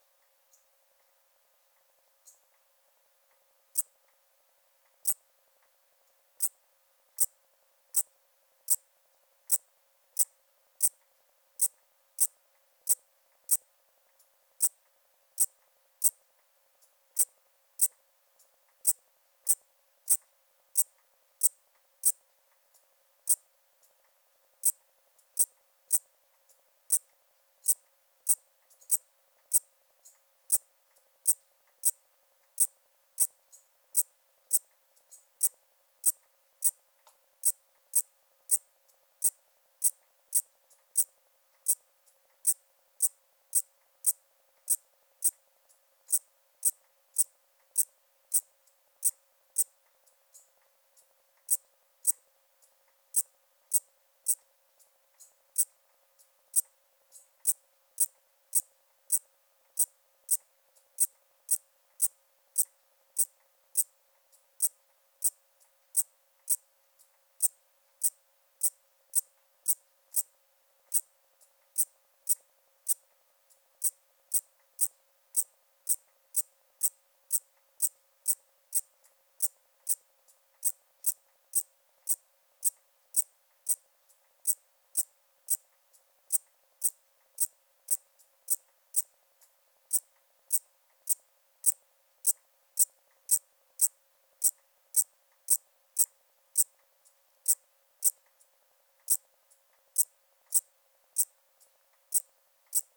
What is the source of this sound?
Eupholidoptera garganica, an orthopteran